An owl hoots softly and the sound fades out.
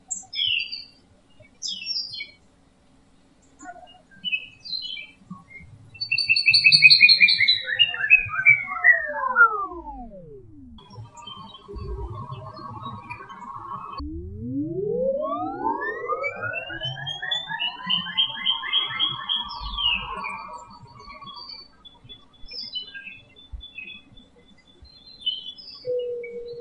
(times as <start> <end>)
25.8 26.6